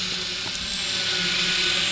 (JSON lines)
{"label": "anthrophony, boat engine", "recorder": "SoundTrap 500"}